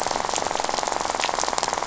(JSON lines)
{"label": "biophony, rattle", "recorder": "SoundTrap 500"}